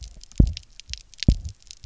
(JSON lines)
{"label": "biophony, double pulse", "recorder": "SoundTrap 300"}